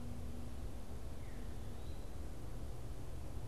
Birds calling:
Veery (Catharus fuscescens), Eastern Wood-Pewee (Contopus virens)

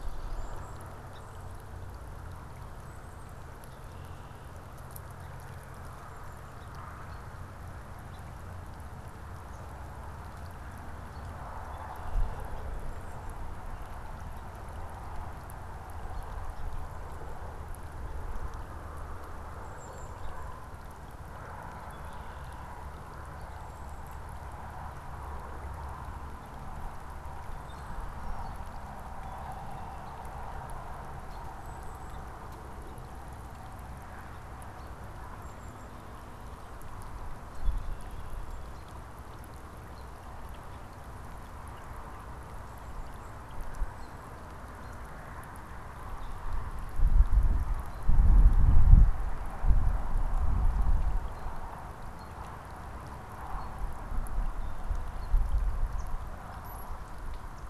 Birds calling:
Song Sparrow (Melospiza melodia), Golden-crowned Kinglet (Regulus satrapa), American Robin (Turdus migratorius), Red-winged Blackbird (Agelaius phoeniceus)

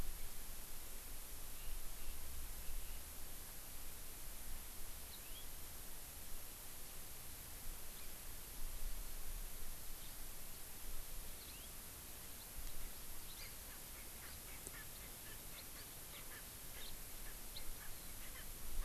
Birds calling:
Yellow-fronted Canary (Crithagra mozambica)

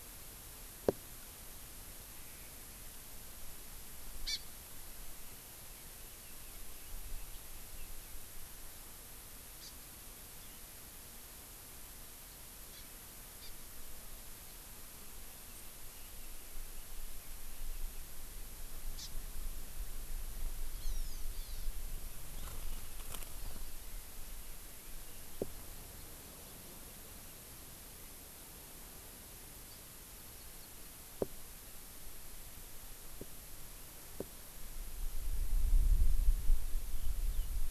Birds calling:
Hawaii Amakihi (Chlorodrepanis virens), Chinese Hwamei (Garrulax canorus)

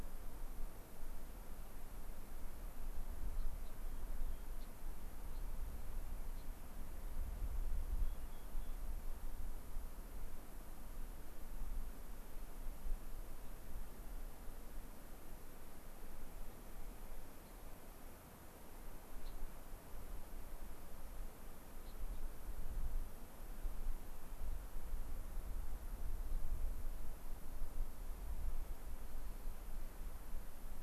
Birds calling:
Gray-crowned Rosy-Finch (Leucosticte tephrocotis), Rock Wren (Salpinctes obsoletus)

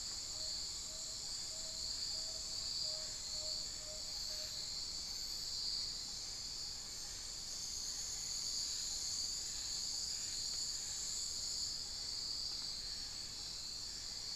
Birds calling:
Amazonian Pygmy-Owl (Glaucidium hardyi), Tawny-bellied Screech-Owl (Megascops watsonii)

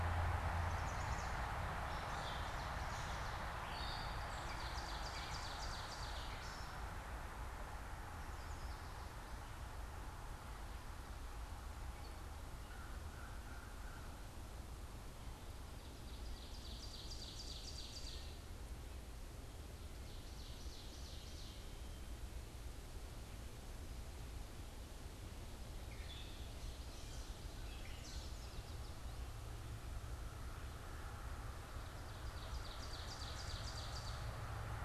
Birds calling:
Yellow Warbler (Setophaga petechia), American Crow (Corvus brachyrhynchos), Chestnut-sided Warbler (Setophaga pensylvanica), Ovenbird (Seiurus aurocapilla), Gray Catbird (Dumetella carolinensis)

